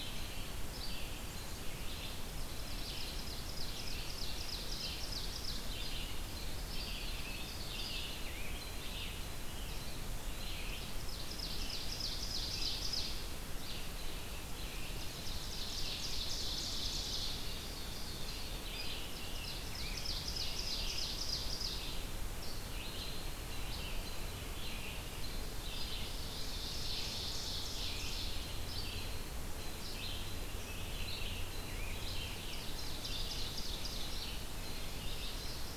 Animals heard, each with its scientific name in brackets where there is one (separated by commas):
Red-eyed Vireo (Vireo olivaceus), Ovenbird (Seiurus aurocapilla), Black-capped Chickadee (Poecile atricapillus), Eastern Wood-Pewee (Contopus virens)